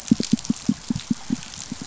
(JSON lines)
{"label": "biophony, pulse", "recorder": "SoundTrap 500"}